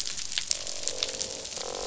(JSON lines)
{"label": "biophony, croak", "recorder": "SoundTrap 500"}